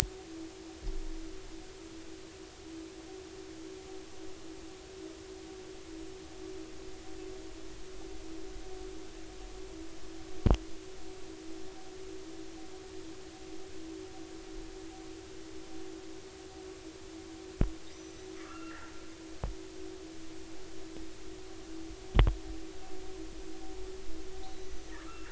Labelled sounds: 17.9	18.9	killer whale, northern resident, 1.1 to 6.0 kHz
24.6	25.3	killer whale, northern resident, 1.1 to 6.2 kHz

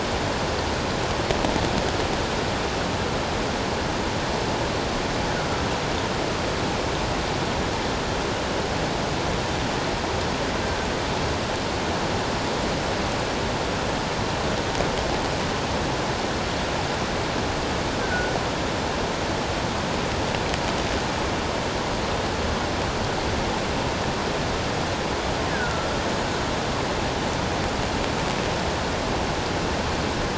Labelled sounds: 10.6	10.9	killer whale, offshore, 1.5 to 1.6 kHz
18.0	18.4	killer whale, offshore, call OFF17, 1.4 to 1.6 kHz
25.5	25.9	killer whale, offshore, call OFF17, 1.3 to 1.8 kHz

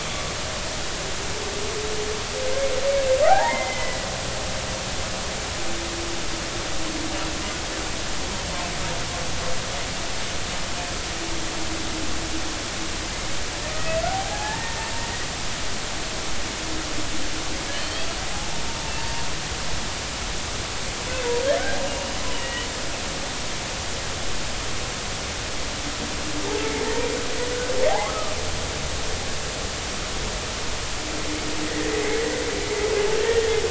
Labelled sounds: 3.3	4.1	humpback whale, 0.80 to 2.2 kHz
14.1	14.9	humpback whale, 0.80 to 1.9 kHz
17.7	18.1	humpback whale, 2.8 to 3.4 kHz
19.0	19.2	humpback whale, 0.86 to 0.96 kHz
22.3	22.7	humpback whale, 1.9 to 3.0 kHz
27.9	28.3	humpback whale, 0.80 to 1.3 kHz
31.6	31.9	humpback whale, 1.8 to 2.1 kHz

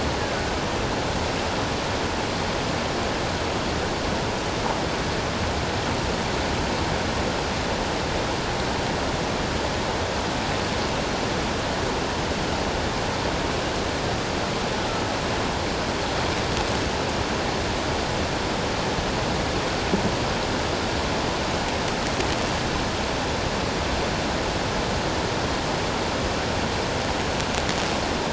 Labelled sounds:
14.8	15.0	killer whale, offshore, call OFF17, 1.3 to 1.5 kHz

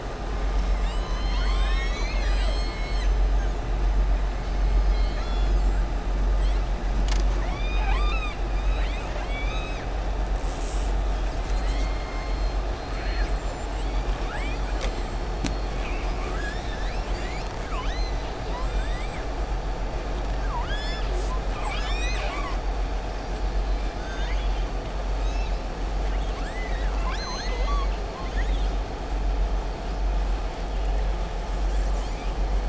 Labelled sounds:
4.8	5.8	killer whale, southern resident, 1.4 to 7.6 kHz
7.3	9.8	killer whale, southern resident, 0.79 to 6.5 kHz
12.7	13.3	killer whale, southern resident, 1.3 to 5.0 kHz
17.6	18.2	killer whale, southern resident, 1.0 to 6.9 kHz
20.4	21.4	killer whale, southern resident, 0.96 to 8.0 kHz
23.9	24.6	killer whale, southern resident, 1.0 to 6.6 kHz
26.0	28.7	killer whale, southern resident, 0.94 to 7.2 kHz

